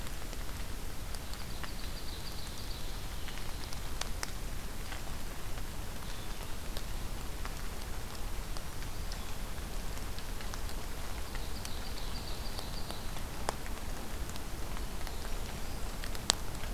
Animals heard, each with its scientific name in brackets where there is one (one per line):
Ovenbird (Seiurus aurocapilla)